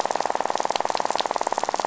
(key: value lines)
label: biophony, rattle
recorder: SoundTrap 500